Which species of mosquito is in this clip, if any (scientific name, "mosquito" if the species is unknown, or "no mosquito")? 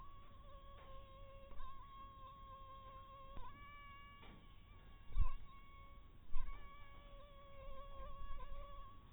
mosquito